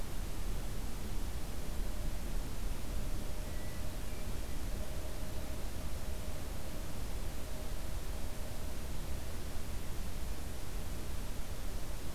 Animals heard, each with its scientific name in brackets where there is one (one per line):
Hermit Thrush (Catharus guttatus)